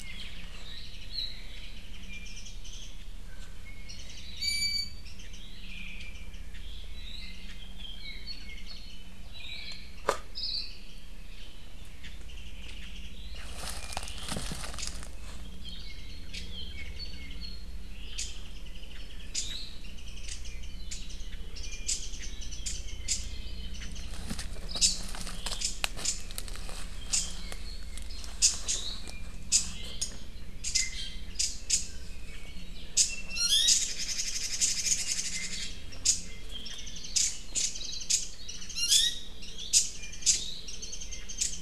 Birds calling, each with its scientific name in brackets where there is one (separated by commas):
Iiwi (Drepanis coccinea), Warbling White-eye (Zosterops japonicus), Hawaii Akepa (Loxops coccineus), Apapane (Himatione sanguinea), Red-billed Leiothrix (Leiothrix lutea)